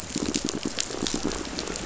{"label": "biophony, pulse", "recorder": "SoundTrap 500"}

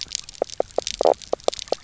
{"label": "biophony, knock croak", "recorder": "SoundTrap 300"}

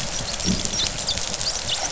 {"label": "biophony, dolphin", "recorder": "SoundTrap 500"}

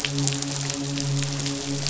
{"label": "biophony, midshipman", "recorder": "SoundTrap 500"}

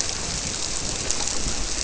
{"label": "biophony", "recorder": "SoundTrap 300"}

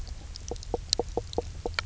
{"label": "biophony, knock croak", "recorder": "SoundTrap 300"}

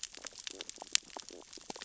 {"label": "biophony, sea urchins (Echinidae)", "recorder": "SoundTrap 600 or HydroMoth"}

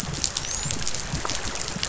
{"label": "biophony, dolphin", "recorder": "SoundTrap 500"}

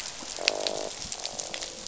{"label": "biophony, croak", "recorder": "SoundTrap 500"}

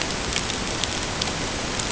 {"label": "ambient", "recorder": "HydroMoth"}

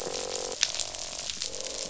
{"label": "biophony, croak", "recorder": "SoundTrap 500"}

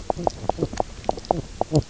{"label": "biophony, knock croak", "recorder": "SoundTrap 300"}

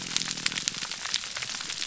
{"label": "biophony, grouper groan", "recorder": "SoundTrap 300"}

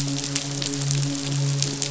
{"label": "biophony, midshipman", "recorder": "SoundTrap 500"}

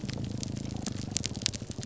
{"label": "biophony, grouper groan", "recorder": "SoundTrap 300"}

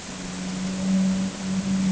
{"label": "anthrophony, boat engine", "recorder": "HydroMoth"}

